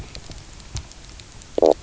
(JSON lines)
{"label": "biophony, knock croak", "recorder": "SoundTrap 300"}